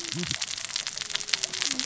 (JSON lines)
{"label": "biophony, cascading saw", "recorder": "SoundTrap 600 or HydroMoth"}